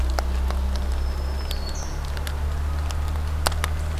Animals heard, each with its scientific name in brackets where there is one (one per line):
Black-throated Green Warbler (Setophaga virens)